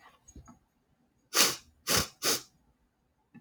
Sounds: Sniff